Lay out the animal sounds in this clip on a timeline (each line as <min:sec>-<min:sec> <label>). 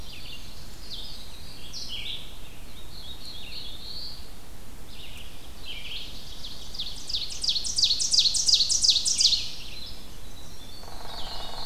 0:00.0-0:02.3 Winter Wren (Troglodytes hiemalis)
0:00.0-0:11.7 Red-eyed Vireo (Vireo olivaceus)
0:00.6-0:02.2 Blackpoll Warbler (Setophaga striata)
0:02.5-0:04.2 Black-throated Blue Warbler (Setophaga caerulescens)
0:05.4-0:09.8 Ovenbird (Seiurus aurocapilla)
0:09.3-0:11.7 Winter Wren (Troglodytes hiemalis)
0:10.2-0:11.7 Tennessee Warbler (Leiothlypis peregrina)
0:10.7-0:11.7 Hairy Woodpecker (Dryobates villosus)
0:10.8-0:11.7 Black-throated Blue Warbler (Setophaga caerulescens)